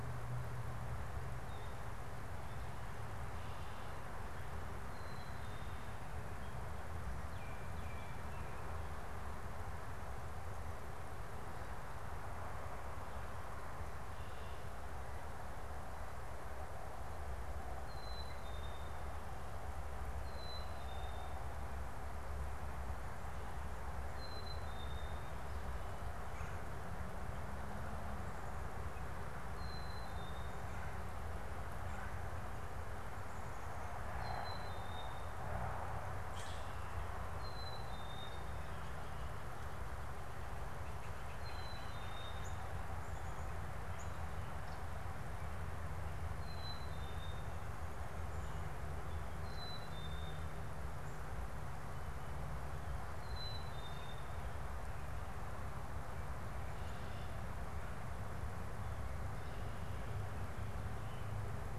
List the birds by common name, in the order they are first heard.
Black-capped Chickadee, Baltimore Oriole, Common Grackle, Blue Jay